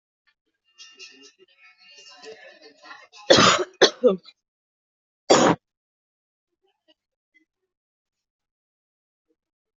{"expert_labels": [{"quality": "poor", "cough_type": "unknown", "dyspnea": false, "wheezing": false, "stridor": false, "choking": false, "congestion": false, "nothing": true, "diagnosis": "lower respiratory tract infection", "severity": "mild"}], "age": 21, "gender": "female", "respiratory_condition": false, "fever_muscle_pain": false, "status": "COVID-19"}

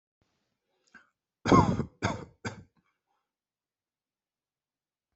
{"expert_labels": [{"quality": "good", "cough_type": "dry", "dyspnea": false, "wheezing": false, "stridor": false, "choking": false, "congestion": false, "nothing": true, "diagnosis": "COVID-19", "severity": "mild"}], "age": 18, "gender": "male", "respiratory_condition": true, "fever_muscle_pain": false, "status": "symptomatic"}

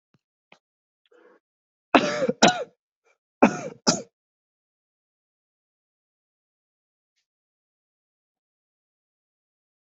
{"expert_labels": [{"quality": "good", "cough_type": "dry", "dyspnea": false, "wheezing": false, "stridor": false, "choking": false, "congestion": false, "nothing": true, "diagnosis": "upper respiratory tract infection", "severity": "mild"}], "age": 20, "gender": "male", "respiratory_condition": true, "fever_muscle_pain": true, "status": "symptomatic"}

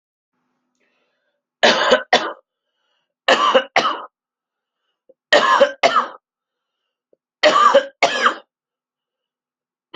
{"expert_labels": [{"quality": "good", "cough_type": "wet", "dyspnea": false, "wheezing": false, "stridor": false, "choking": false, "congestion": false, "nothing": true, "diagnosis": "lower respiratory tract infection", "severity": "severe"}], "age": 38, "gender": "male", "respiratory_condition": false, "fever_muscle_pain": false, "status": "healthy"}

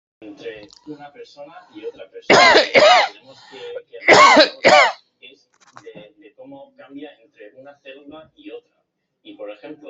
{"expert_labels": [{"quality": "good", "cough_type": "wet", "dyspnea": false, "wheezing": false, "stridor": false, "choking": false, "congestion": false, "nothing": true, "diagnosis": "lower respiratory tract infection", "severity": "mild"}]}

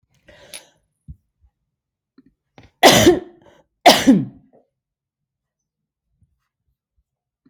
{"expert_labels": [{"quality": "good", "cough_type": "dry", "dyspnea": false, "wheezing": false, "stridor": false, "choking": false, "congestion": false, "nothing": true, "diagnosis": "COVID-19", "severity": "mild"}]}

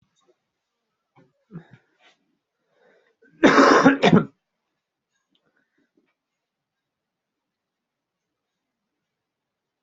{"expert_labels": [{"quality": "good", "cough_type": "wet", "dyspnea": false, "wheezing": false, "stridor": false, "choking": false, "congestion": false, "nothing": true, "diagnosis": "upper respiratory tract infection", "severity": "mild"}]}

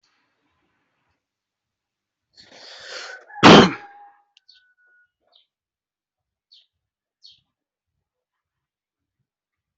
{"expert_labels": [{"quality": "ok", "cough_type": "wet", "dyspnea": false, "wheezing": false, "stridor": false, "choking": false, "congestion": false, "nothing": true, "diagnosis": "COVID-19", "severity": "unknown"}], "age": 28, "gender": "male", "respiratory_condition": false, "fever_muscle_pain": false, "status": "COVID-19"}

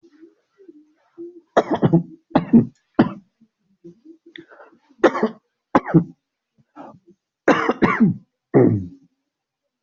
{"expert_labels": [{"quality": "ok", "cough_type": "unknown", "dyspnea": false, "wheezing": false, "stridor": false, "choking": false, "congestion": false, "nothing": true, "diagnosis": "COVID-19", "severity": "mild"}], "age": 49, "gender": "male", "respiratory_condition": false, "fever_muscle_pain": false, "status": "symptomatic"}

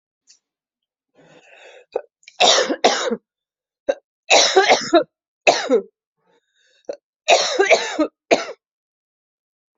{"expert_labels": [{"quality": "good", "cough_type": "dry", "dyspnea": false, "wheezing": false, "stridor": false, "choking": false, "congestion": true, "nothing": false, "diagnosis": "upper respiratory tract infection", "severity": "mild"}], "age": 53, "gender": "female", "respiratory_condition": true, "fever_muscle_pain": false, "status": "symptomatic"}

